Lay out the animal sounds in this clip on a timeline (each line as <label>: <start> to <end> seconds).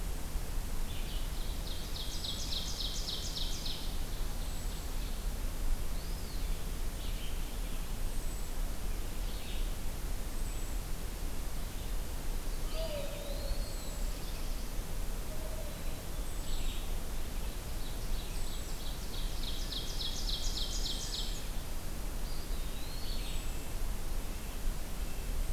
Red-eyed Vireo (Vireo olivaceus): 0.0 to 1.3 seconds
Ovenbird (Seiurus aurocapilla): 1.2 to 5.2 seconds
unidentified call: 4.2 to 25.5 seconds
Eastern Wood-Pewee (Contopus virens): 5.9 to 6.8 seconds
Red-eyed Vireo (Vireo olivaceus): 6.9 to 25.5 seconds
Eastern Wood-Pewee (Contopus virens): 12.6 to 14.0 seconds
Black-throated Blue Warbler (Setophaga caerulescens): 13.5 to 14.8 seconds
Black-capped Chickadee (Poecile atricapillus): 15.5 to 16.7 seconds
Ovenbird (Seiurus aurocapilla): 17.5 to 21.3 seconds
Black-and-white Warbler (Mniotilta varia): 20.0 to 21.3 seconds
Eastern Wood-Pewee (Contopus virens): 22.0 to 23.4 seconds
Red-breasted Nuthatch (Sitta canadensis): 24.5 to 25.5 seconds